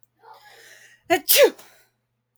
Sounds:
Sneeze